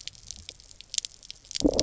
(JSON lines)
{"label": "biophony, low growl", "recorder": "SoundTrap 300"}